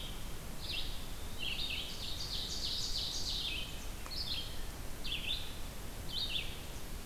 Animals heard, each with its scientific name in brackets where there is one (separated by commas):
Red-eyed Vireo (Vireo olivaceus), Ovenbird (Seiurus aurocapilla), Eastern Wood-Pewee (Contopus virens)